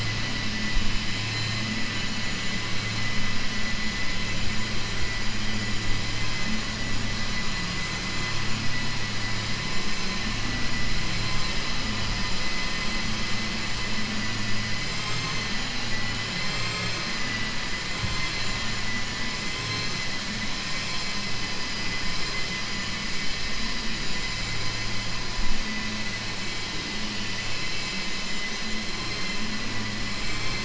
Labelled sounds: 1.0	1.6	vessel noise, 1.6 to 4.6 kHz
16.4	17.0	vessel noise, 5.5 to 7.5 kHz
18.0	19.2	vessel noise, 6.0 to 8.0 kHz
30.1	30.6	vessel noise, 5.4 to 7.8 kHz

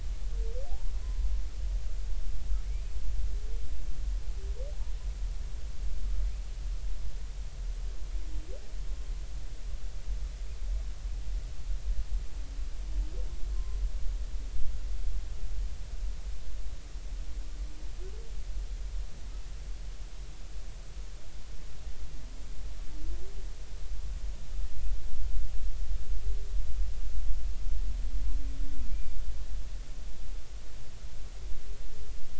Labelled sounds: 1.0	1.3	humpback whale, 0.99 to 1.1 kHz
2.6	3.0	humpback whale, 2.1 to 2.6 kHz
13.5	13.8	humpback whale, 0.99 to 1.1 kHz

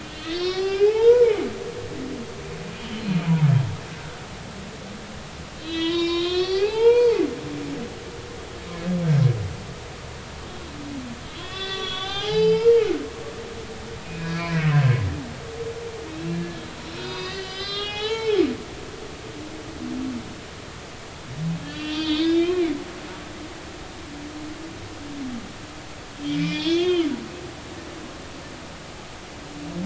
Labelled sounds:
0.0	1.4	humpback whale, 0.80 to 5.9 kHz
2.8	3.0	humpback whale, 2.8 to 3.4 kHz
5.6	7.2	humpback whale, 0.80 to 6.1 kHz
11.2	12.8	humpback whale, 0.80 to 5.9 kHz
14.0	14.6	humpback whale, 1.6 to 2.6 kHz
16.1	18.4	humpback whale, 0.80 to 5.6 kHz
21.7	22.8	humpback whale, 1.5 to 3.9 kHz
26.3	27.1	humpback whale, 2.0 to 5.2 kHz

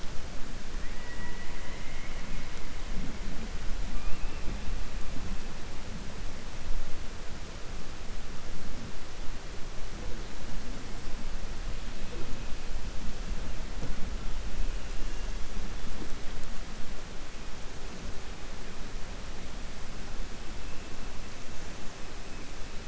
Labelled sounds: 0.8	2.5	killer whale, southern resident, 0.97 to 3.1 kHz
3.9	4.4	killer whale, southern resident, 2.4 to 2.9 kHz

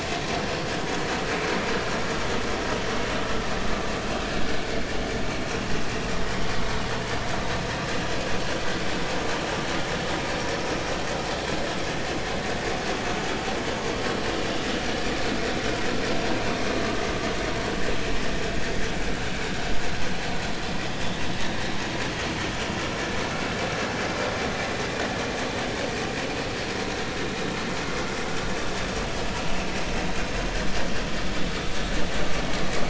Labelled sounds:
10.5	10.8	vessel noise, 1.2 to 1.3 kHz

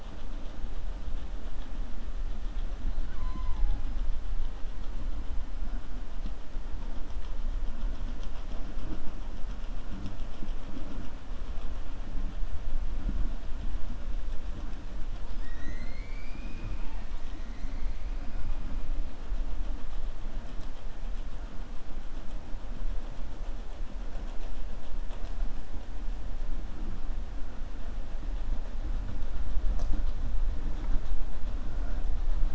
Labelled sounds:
15.2	17.4	killer whale, 0.91 to 7.8 kHz

